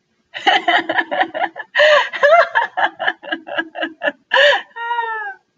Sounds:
Laughter